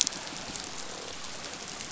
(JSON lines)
{"label": "biophony", "recorder": "SoundTrap 500"}